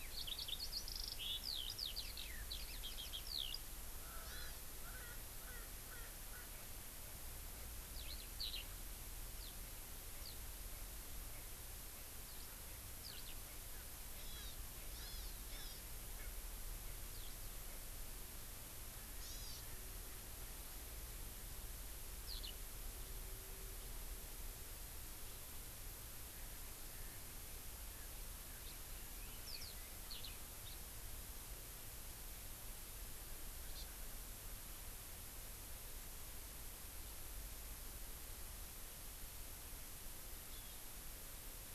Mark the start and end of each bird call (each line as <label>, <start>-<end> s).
Eurasian Skylark (Alauda arvensis), 0.0-3.6 s
Erckel's Francolin (Pternistis erckelii), 4.0-6.5 s
Hawaii Amakihi (Chlorodrepanis virens), 4.2-4.6 s
Eurasian Skylark (Alauda arvensis), 7.9-8.7 s
Eurasian Skylark (Alauda arvensis), 9.4-9.5 s
Eurasian Skylark (Alauda arvensis), 10.2-10.3 s
Eurasian Skylark (Alauda arvensis), 12.2-12.5 s
Eurasian Skylark (Alauda arvensis), 13.0-13.2 s
Hawaii Amakihi (Chlorodrepanis virens), 14.2-14.6 s
Hawaii Amakihi (Chlorodrepanis virens), 14.9-15.8 s
Eurasian Skylark (Alauda arvensis), 17.1-17.3 s
Hawaii Amakihi (Chlorodrepanis virens), 19.3-19.6 s
Eurasian Skylark (Alauda arvensis), 22.2-22.5 s
Eurasian Skylark (Alauda arvensis), 29.4-29.7 s
Eurasian Skylark (Alauda arvensis), 30.1-30.3 s